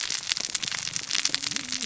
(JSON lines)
{"label": "biophony, cascading saw", "recorder": "SoundTrap 600 or HydroMoth"}